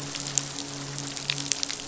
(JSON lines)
{"label": "biophony, midshipman", "recorder": "SoundTrap 500"}